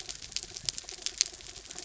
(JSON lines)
{"label": "anthrophony, mechanical", "recorder": "SoundTrap 300"}